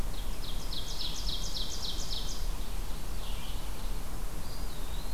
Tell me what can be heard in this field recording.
Ovenbird, Red-eyed Vireo, Eastern Wood-Pewee